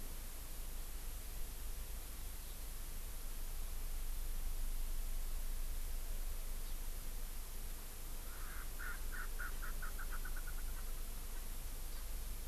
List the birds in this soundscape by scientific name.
Chlorodrepanis virens, Pternistis erckelii